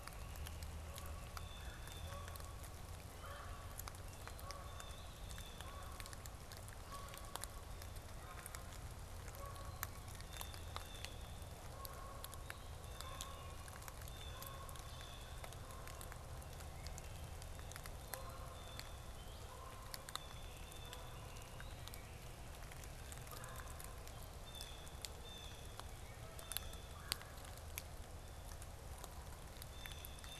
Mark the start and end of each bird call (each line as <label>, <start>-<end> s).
Great Crested Flycatcher (Myiarchus crinitus), 0.0-0.6 s
Blue Jay (Cyanocitta cristata), 0.0-6.1 s
Canada Goose (Branta canadensis), 0.0-13.9 s
Blue Jay (Cyanocitta cristata), 10.0-15.6 s
Blue-headed Vireo (Vireo solitarius), 11.9-30.4 s
Canada Goose (Branta canadensis), 17.9-28.4 s
Blue Jay (Cyanocitta cristata), 18.2-30.4 s
Red-bellied Woodpecker (Melanerpes carolinus), 23.1-24.1 s
Red-bellied Woodpecker (Melanerpes carolinus), 26.8-27.4 s